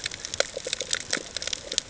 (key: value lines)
label: ambient
recorder: HydroMoth